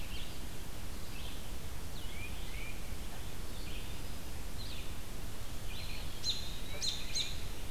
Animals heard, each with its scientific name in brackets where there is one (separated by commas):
Eastern Wood-Pewee (Contopus virens), American Robin (Turdus migratorius), Red-eyed Vireo (Vireo olivaceus), Tufted Titmouse (Baeolophus bicolor)